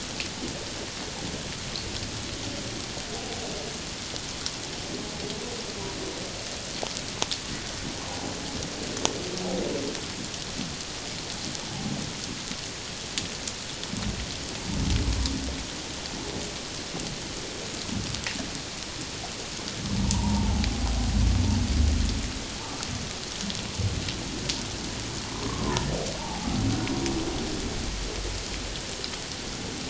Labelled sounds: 20.0	20.7	humpback whale, 0.81 to 1.0 kHz
25.3	25.6	humpback whale, 0.94 to 1.2 kHz
26.2	26.5	humpback whale, 0.78 to 0.97 kHz

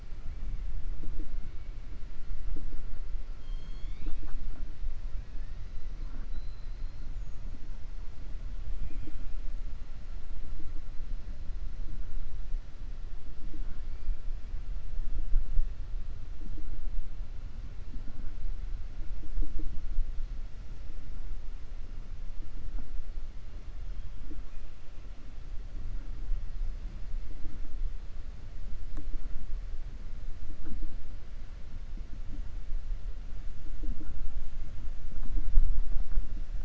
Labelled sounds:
3.3	4.4	killer whale, 0.27 to 7.6 kHz
6.2	7.0	killer whale, 3.9 to 5.0 kHz

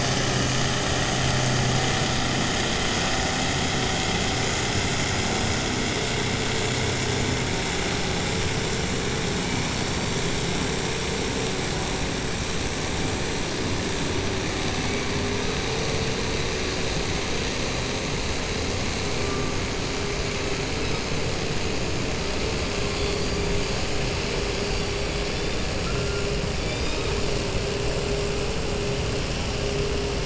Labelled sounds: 22.8	23.9	killer whale, 0.68 to 6.1 kHz
24.6	27.2	killer whale, 0.75 to 7.7 kHz

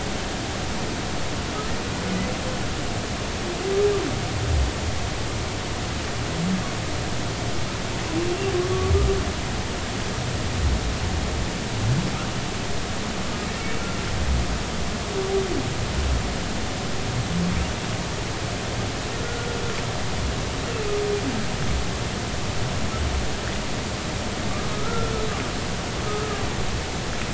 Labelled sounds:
24.7	25.1	humpback whale, 1.2 to 1.4 kHz

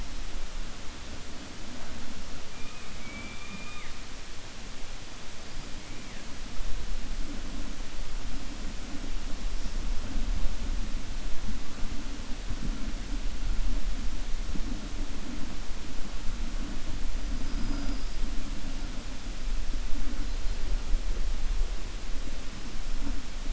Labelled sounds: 17.5	18.2	killer whale, 4.9 to 5.5 kHz

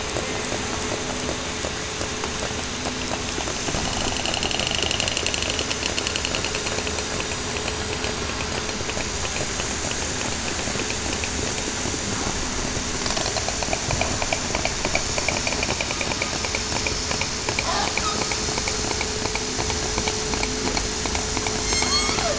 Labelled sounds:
21.6	22.1	killer whale, southern resident, 6.3 to 8.0 kHz

